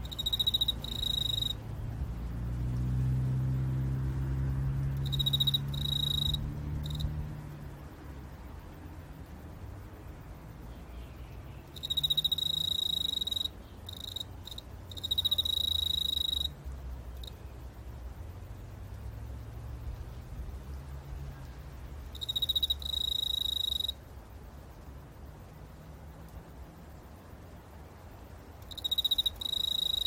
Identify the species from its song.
Teleogryllus commodus